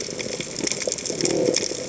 {"label": "biophony", "recorder": "HydroMoth"}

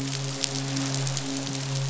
{"label": "biophony, midshipman", "recorder": "SoundTrap 500"}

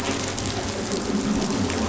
{"label": "anthrophony, boat engine", "recorder": "SoundTrap 500"}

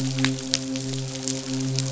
{"label": "biophony, midshipman", "recorder": "SoundTrap 500"}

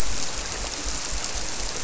{"label": "biophony", "recorder": "SoundTrap 300"}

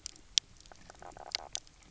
{"label": "biophony, knock croak", "recorder": "SoundTrap 300"}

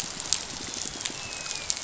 {"label": "biophony, dolphin", "recorder": "SoundTrap 500"}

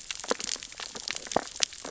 {"label": "biophony, sea urchins (Echinidae)", "recorder": "SoundTrap 600 or HydroMoth"}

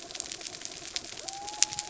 {"label": "anthrophony, mechanical", "recorder": "SoundTrap 300"}
{"label": "biophony", "recorder": "SoundTrap 300"}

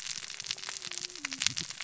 {"label": "biophony, cascading saw", "recorder": "SoundTrap 600 or HydroMoth"}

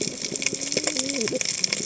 {"label": "biophony, cascading saw", "recorder": "HydroMoth"}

